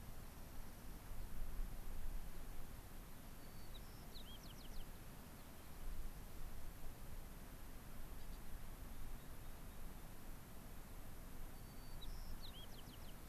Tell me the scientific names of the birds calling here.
Junco hyemalis, Zonotrichia leucophrys, Salpinctes obsoletus